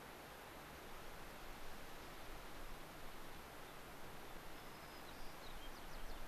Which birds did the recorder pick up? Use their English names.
White-crowned Sparrow